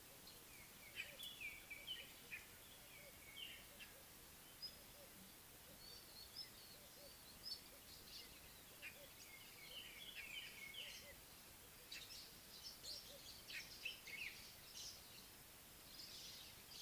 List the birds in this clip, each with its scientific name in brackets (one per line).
White-browed Robin-Chat (Cossypha heuglini)
Little Bee-eater (Merops pusillus)
White-bellied Go-away-bird (Corythaixoides leucogaster)